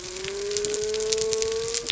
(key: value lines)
label: biophony
recorder: SoundTrap 300